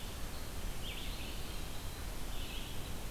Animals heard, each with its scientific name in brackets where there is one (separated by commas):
Red-eyed Vireo (Vireo olivaceus), Eastern Wood-Pewee (Contopus virens)